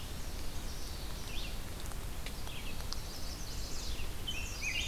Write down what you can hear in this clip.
Red-eyed Vireo, Common Yellowthroat, Chestnut-sided Warbler, Rose-breasted Grosbeak